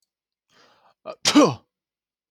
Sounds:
Sneeze